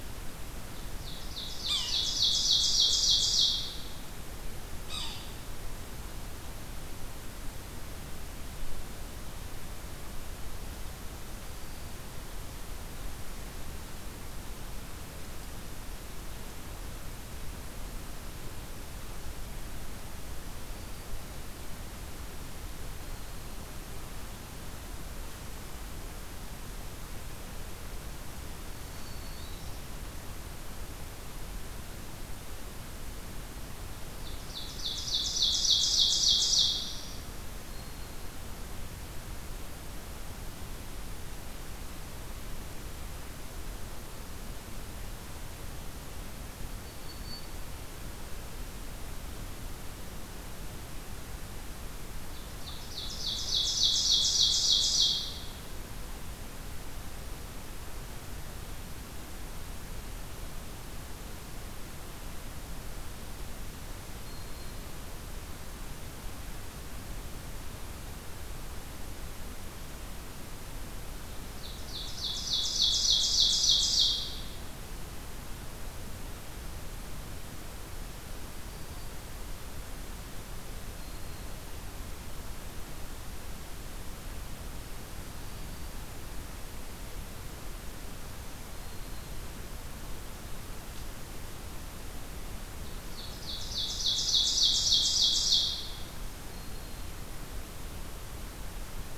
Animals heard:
Ovenbird (Seiurus aurocapilla)
Yellow-bellied Sapsucker (Sphyrapicus varius)
Black-throated Green Warbler (Setophaga virens)

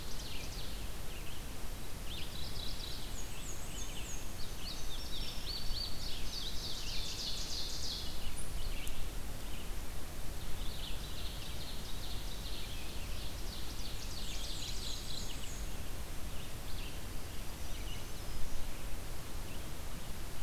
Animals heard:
Red-eyed Vireo (Vireo olivaceus)
Mourning Warbler (Geothlypis philadelphia)
Black-throated Green Warbler (Setophaga virens)
Ovenbird (Seiurus aurocapilla)
Black-and-white Warbler (Mniotilta varia)
Indigo Bunting (Passerina cyanea)

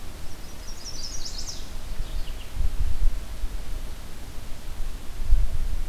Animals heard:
Mourning Warbler (Geothlypis philadelphia)
Chestnut-sided Warbler (Setophaga pensylvanica)

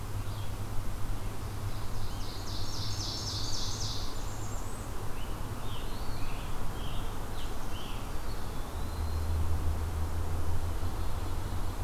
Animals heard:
Eastern Wood-Pewee (Contopus virens)
Blackburnian Warbler (Setophaga fusca)
Scarlet Tanager (Piranga olivacea)
Ovenbird (Seiurus aurocapilla)

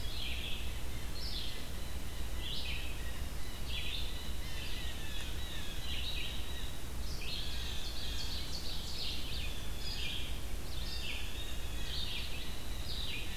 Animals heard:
Ovenbird (Seiurus aurocapilla)
Blue Jay (Cyanocitta cristata)
Red-eyed Vireo (Vireo olivaceus)

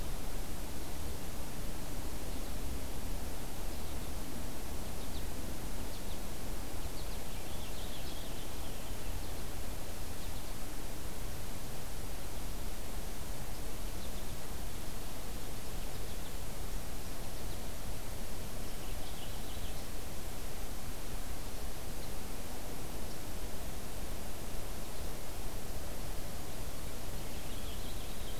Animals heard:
American Goldfinch (Spinus tristis)
Purple Finch (Haemorhous purpureus)

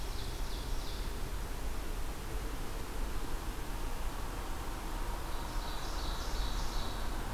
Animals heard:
Ovenbird (Seiurus aurocapilla)

